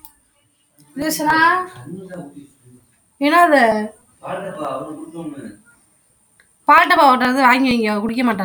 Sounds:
Throat clearing